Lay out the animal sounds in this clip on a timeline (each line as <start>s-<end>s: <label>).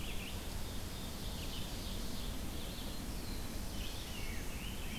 0.0s-1.6s: Red-eyed Vireo (Vireo olivaceus)
0.8s-2.5s: Ovenbird (Seiurus aurocapilla)
2.3s-5.0s: Red-eyed Vireo (Vireo olivaceus)
2.8s-4.6s: Black-throated Blue Warbler (Setophaga caerulescens)
3.4s-5.0s: Rose-breasted Grosbeak (Pheucticus ludovicianus)
3.7s-5.0s: Scarlet Tanager (Piranga olivacea)